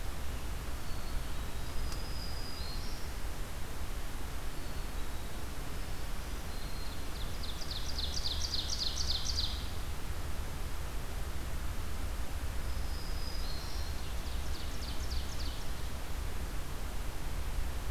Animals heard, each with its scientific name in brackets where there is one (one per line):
Black-capped Chickadee (Poecile atricapillus)
Ovenbird (Seiurus aurocapilla)
Black-throated Green Warbler (Setophaga virens)